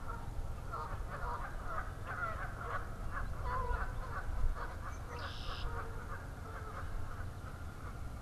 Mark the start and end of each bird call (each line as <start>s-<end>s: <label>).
0.0s-8.2s: Canada Goose (Branta canadensis)
4.4s-5.9s: Red-winged Blackbird (Agelaius phoeniceus)